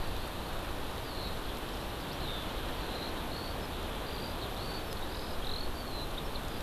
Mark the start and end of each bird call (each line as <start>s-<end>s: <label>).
1.0s-6.6s: Eurasian Skylark (Alauda arvensis)